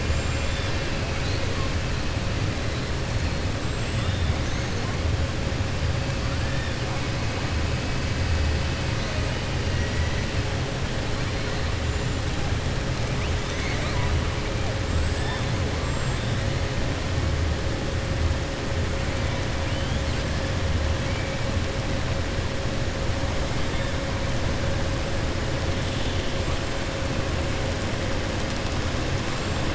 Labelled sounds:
0.0	0.6	killer whale, 7.0 to 7.8 kHz

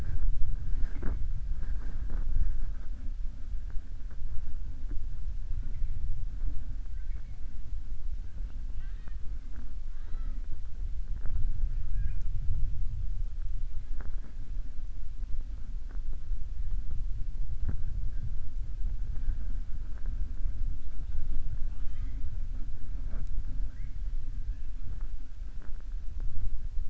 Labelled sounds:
21.6	22.2	killer whale, southern resident, 0.89 to 3.8 kHz

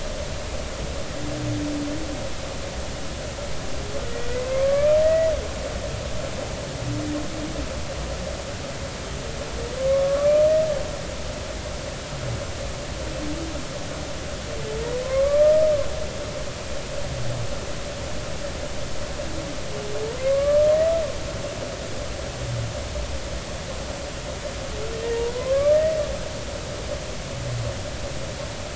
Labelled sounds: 4.5	5.3	humpback whale, 1.0 to 2.0 kHz
9.8	10.4	humpback whale, 1.0 to 1.3 kHz
15.0	15.5	humpback whale, 0.99 to 2.3 kHz
20.3	20.7	humpback whale, 1.1 to 1.2 kHz
25.3	25.8	humpback whale, 0.96 to 1.2 kHz

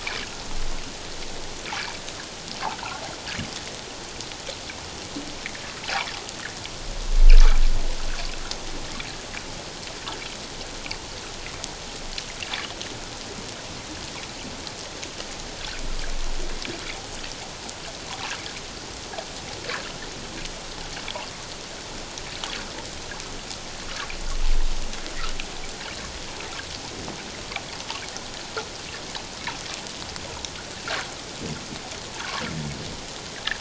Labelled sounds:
2.7	3.0	water noise, 1.2 to 1.6 kHz
19.6	19.9	water noise, 1.5 to 1.8 kHz

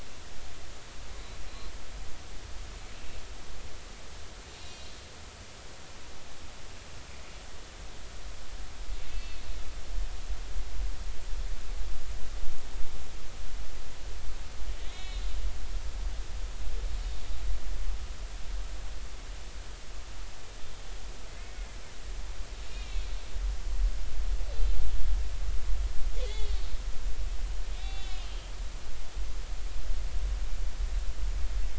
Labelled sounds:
4.6	5.0	killer whale, northern resident, A clan, call N03, 2.8 to 5.7 kHz
9.1	9.4	killer whale, northern resident, A clan, call N03, 2.5 to 4.4 kHz
14.8	15.3	killer whale, northern resident, A clan, call N03, 1.8 to 4.2 kHz
21.3	21.8	killer whale, northern resident, A clan, call N03, 2.0 to 2.2 kHz
22.7	23.1	killer whale, northern resident, A clan, call N03, 2.2 to 2.9 kHz
26.2	26.6	killer whale, northern resident, A clan, call N03, 1.9 to 7.0 kHz
27.7	28.3	killer whale, northern resident, A clan, call N03, 2.4 to 3.9 kHz

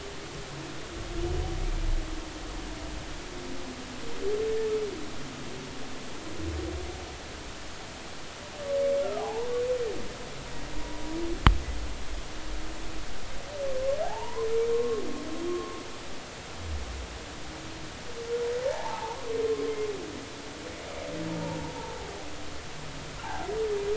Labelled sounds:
1.6	1.9	humpback whale, 2.1 to 2.4 kHz
9.2	9.5	humpback whale, 0.80 to 1.1 kHz
14.0	15.0	humpback whale, 0.80 to 1.2 kHz
15.5	15.8	humpback whale, 1.0 to 1.2 kHz
19.6	20.2	humpback whale, 0.80 to 1.2 kHz
21.8	22.1	humpback whale, 0.80 to 0.96 kHz
23.2	23.5	humpback whale, 0.80 to 1.1 kHz

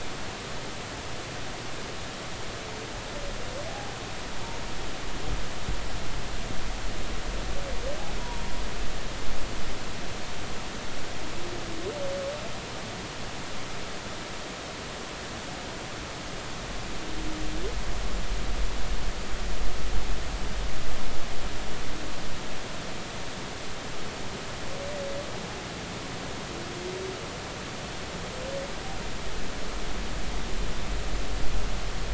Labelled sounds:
3.6	4.0	humpback whale, 0.80 to 0.86 kHz
8.2	8.4	humpback whale, 0.90 to 1.0 kHz

